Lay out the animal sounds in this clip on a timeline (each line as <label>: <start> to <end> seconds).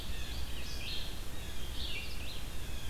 Blue Jay (Cyanocitta cristata): 0.0 to 2.9 seconds
Red-eyed Vireo (Vireo olivaceus): 0.0 to 2.9 seconds